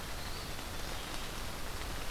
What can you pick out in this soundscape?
Eastern Wood-Pewee